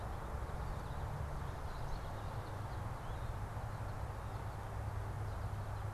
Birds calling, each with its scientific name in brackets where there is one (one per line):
American Goldfinch (Spinus tristis)